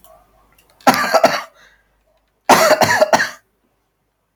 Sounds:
Cough